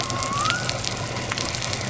{"label": "biophony", "recorder": "SoundTrap 300"}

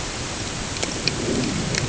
{"label": "ambient", "recorder": "HydroMoth"}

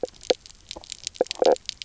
{"label": "biophony, knock croak", "recorder": "SoundTrap 300"}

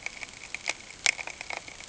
{"label": "ambient", "recorder": "HydroMoth"}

